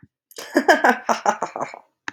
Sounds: Laughter